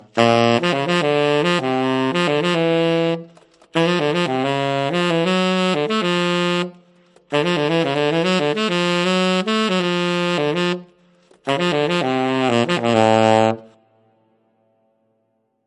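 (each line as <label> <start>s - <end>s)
A saxophone produces a steady, pleasant sound. 0.0s - 3.2s
A saxophone produces a steady, pleasant sound. 3.8s - 10.8s
A saxophone produces a steady, pleasant sound. 11.5s - 13.7s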